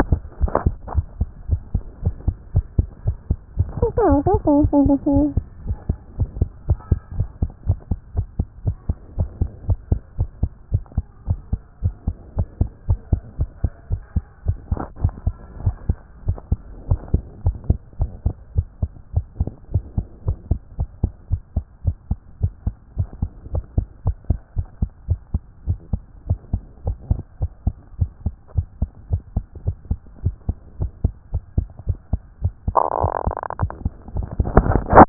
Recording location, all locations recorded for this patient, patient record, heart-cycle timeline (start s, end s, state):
tricuspid valve (TV)
aortic valve (AV)+pulmonary valve (PV)+tricuspid valve (TV)+mitral valve (MV)
#Age: Child
#Sex: Male
#Height: 126.0 cm
#Weight: 15.1 kg
#Pregnancy status: False
#Murmur: Absent
#Murmur locations: nan
#Most audible location: nan
#Systolic murmur timing: nan
#Systolic murmur shape: nan
#Systolic murmur grading: nan
#Systolic murmur pitch: nan
#Systolic murmur quality: nan
#Diastolic murmur timing: nan
#Diastolic murmur shape: nan
#Diastolic murmur grading: nan
#Diastolic murmur pitch: nan
#Diastolic murmur quality: nan
#Outcome: Abnormal
#Campaign: 2014 screening campaign
0.00	0.18	S2
0.18	0.36	diastole
0.36	0.54	S1
0.54	0.64	systole
0.64	0.78	S2
0.78	0.96	diastole
0.96	1.08	S1
1.08	1.18	systole
1.18	1.32	S2
1.32	1.48	diastole
1.48	1.62	S1
1.62	1.72	systole
1.72	1.86	S2
1.86	2.04	diastole
2.04	2.16	S1
2.16	2.24	systole
2.24	2.38	S2
2.38	2.54	diastole
2.54	2.66	S1
2.66	2.76	systole
2.76	2.90	S2
2.90	3.04	diastole
3.04	3.16	S1
3.16	3.28	systole
3.28	3.38	S2
3.38	3.58	diastole
3.58	3.70	S1
3.70	3.78	systole
3.78	3.90	S2
3.90	4.06	diastole
4.06	4.24	S1
4.24	4.28	systole
4.28	4.36	S2
4.36	4.50	diastole
4.50	4.68	S1
4.68	4.76	systole
4.76	4.92	S2
4.92	5.10	diastole
5.10	5.28	S1
5.28	5.34	systole
5.34	5.48	S2
5.48	5.64	diastole
5.64	5.78	S1
5.78	5.86	systole
5.86	5.96	S2
5.96	6.16	diastole
6.16	6.30	S1
6.30	6.40	systole
6.40	6.52	S2
6.52	6.68	diastole
6.68	6.78	S1
6.78	6.88	systole
6.88	7.02	S2
7.02	7.16	diastole
7.16	7.28	S1
7.28	7.40	systole
7.40	7.50	S2
7.50	7.68	diastole
7.68	7.80	S1
7.80	7.88	systole
7.88	7.98	S2
7.98	8.16	diastole
8.16	8.28	S1
8.28	8.36	systole
8.36	8.46	S2
8.46	8.64	diastole
8.64	8.76	S1
8.76	8.86	systole
8.86	8.98	S2
8.98	9.16	diastole
9.16	9.30	S1
9.30	9.38	systole
9.38	9.52	S2
9.52	9.66	diastole
9.66	9.78	S1
9.78	9.88	systole
9.88	10.00	S2
10.00	10.18	diastole
10.18	10.30	S1
10.30	10.40	systole
10.40	10.54	S2
10.54	10.72	diastole
10.72	10.82	S1
10.82	10.96	systole
10.96	11.06	S2
11.06	11.28	diastole
11.28	11.40	S1
11.40	11.50	systole
11.50	11.64	S2
11.64	11.82	diastole
11.82	11.94	S1
11.94	12.06	systole
12.06	12.16	S2
12.16	12.34	diastole
12.34	12.48	S1
12.48	12.58	systole
12.58	12.72	S2
12.72	12.86	diastole
12.86	13.00	S1
13.00	13.10	systole
13.10	13.24	S2
13.24	13.40	diastole
13.40	13.50	S1
13.50	13.62	systole
13.62	13.72	S2
13.72	13.90	diastole
13.90	14.02	S1
14.02	14.14	systole
14.14	14.28	S2
14.28	14.46	diastole
14.46	14.58	S1
14.58	14.70	systole
14.70	14.80	S2
14.80	14.98	diastole
14.98	15.12	S1
15.12	15.24	systole
15.24	15.38	S2
15.38	15.60	diastole
15.60	15.76	S1
15.76	15.88	systole
15.88	16.02	S2
16.02	16.24	diastole
16.24	16.38	S1
16.38	16.50	systole
16.50	16.64	S2
16.64	16.84	diastole
16.84	17.00	S1
17.00	17.10	systole
17.10	17.26	S2
17.26	17.42	diastole
17.42	17.56	S1
17.56	17.68	systole
17.68	17.82	S2
17.82	18.00	diastole
18.00	18.12	S1
18.12	18.24	systole
18.24	18.34	S2
18.34	18.52	diastole
18.52	18.66	S1
18.66	18.80	systole
18.80	18.90	S2
18.90	19.14	diastole
19.14	19.26	S1
19.26	19.38	systole
19.38	19.52	S2
19.52	19.72	diastole
19.72	19.84	S1
19.84	19.96	systole
19.96	20.06	S2
20.06	20.26	diastole
20.26	20.38	S1
20.38	20.52	systole
20.52	20.62	S2
20.62	20.80	diastole
20.80	20.90	S1
20.90	21.02	systole
21.02	21.12	S2
21.12	21.30	diastole
21.30	21.40	S1
21.40	21.54	systole
21.54	21.64	S2
21.64	21.86	diastole
21.86	21.96	S1
21.96	22.10	systole
22.10	22.20	S2
22.20	22.42	diastole
22.42	22.52	S1
22.52	22.64	systole
22.64	22.74	S2
22.74	22.94	diastole
22.94	23.08	S1
23.08	23.20	systole
23.20	23.30	S2
23.30	23.52	diastole
23.52	23.66	S1
23.66	23.76	systole
23.76	23.90	S2
23.90	24.06	diastole
24.06	24.18	S1
24.18	24.28	systole
24.28	24.42	S2
24.42	24.56	diastole
24.56	24.66	S1
24.66	24.80	systole
24.80	24.90	S2
24.90	25.08	diastole
25.08	25.20	S1
25.20	25.32	systole
25.32	25.44	S2
25.44	25.66	diastole
25.66	25.78	S1
25.78	25.92	systole
25.92	26.06	S2
26.06	26.26	diastole
26.26	26.38	S1
26.38	26.52	systole
26.52	26.62	S2
26.62	26.84	diastole
26.84	26.98	S1
26.98	27.10	systole
27.10	27.24	S2
27.24	27.42	diastole
27.42	27.52	S1
27.52	27.66	systole
27.66	27.80	S2
27.80	28.00	diastole
28.00	28.10	S1
28.10	28.24	systole
28.24	28.34	S2
28.34	28.56	diastole
28.56	28.66	S1
28.66	28.80	systole
28.80	28.90	S2
28.90	29.10	diastole
29.10	29.22	S1
29.22	29.34	systole
29.34	29.46	S2
29.46	29.66	diastole
29.66	29.76	S1
29.76	29.90	systole
29.90	30.04	S2
30.04	30.24	diastole
30.24	30.36	S1
30.36	30.48	systole
30.48	30.58	S2
30.58	30.78	diastole
30.78	30.92	S1
30.92	31.02	systole
31.02	31.14	S2
31.14	31.32	diastole
31.32	31.44	S1
31.44	31.56	systole
31.56	31.70	S2
31.70	31.88	diastole
31.88	31.98	S1
31.98	32.12	systole
32.12	32.26	S2
32.26	32.44	diastole
32.44	32.54	S1
32.54	32.66	systole
32.66	32.76	S2
32.76	32.98	diastole
32.98	33.12	S1
33.12	33.26	systole
33.26	33.40	S2
33.40	33.60	diastole
33.60	33.72	S1
33.72	33.84	systole
33.84	33.94	S2
33.94	34.14	diastole
34.14	34.32	S1
34.32	34.54	systole
34.54	34.70	S2
34.70	34.94	diastole
34.94	35.09	S1